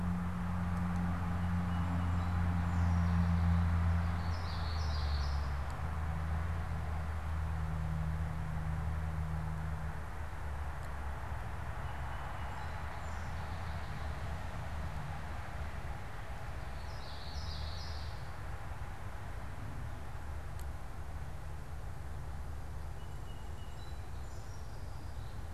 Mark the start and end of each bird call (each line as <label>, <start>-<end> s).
Song Sparrow (Melospiza melodia), 1.3-3.9 s
Common Yellowthroat (Geothlypis trichas), 4.1-5.7 s
Song Sparrow (Melospiza melodia), 11.7-14.4 s
Common Yellowthroat (Geothlypis trichas), 16.6-18.4 s
Song Sparrow (Melospiza melodia), 22.8-25.5 s